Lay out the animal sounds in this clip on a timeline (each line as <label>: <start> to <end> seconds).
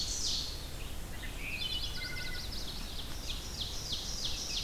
Ovenbird (Seiurus aurocapilla): 0.0 to 0.9 seconds
Red-eyed Vireo (Vireo olivaceus): 0.0 to 4.6 seconds
Wood Thrush (Hylocichla mustelina): 1.1 to 2.8 seconds
Chestnut-sided Warbler (Setophaga pensylvanica): 1.4 to 2.9 seconds
Ovenbird (Seiurus aurocapilla): 2.6 to 4.6 seconds